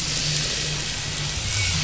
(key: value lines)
label: anthrophony, boat engine
recorder: SoundTrap 500